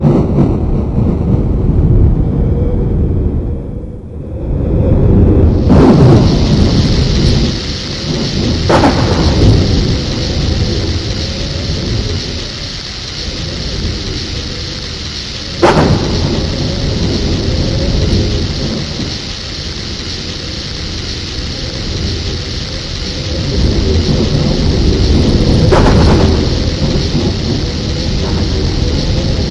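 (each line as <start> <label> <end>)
0.0 Strong gusts of wind whoosh and whistle continuously, varying in intensity and loudness. 29.5
0.0 Thunderstorm striking and softly crackling nearby. 2.6
5.5 Thunder strikes multiple times with sharp rumbling and crackling nearby. 10.5
8.7 Rain starts abruptly at moderate to high intensity, with raindrops making clashing and splashing sounds. 29.5
15.4 Thunder strikes once with a sharp crackle nearby. 19.2
25.7 Thunder strikes and rumbles sharply nearby. 29.5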